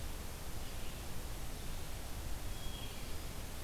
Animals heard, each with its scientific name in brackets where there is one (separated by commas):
Red-eyed Vireo (Vireo olivaceus), Hermit Thrush (Catharus guttatus)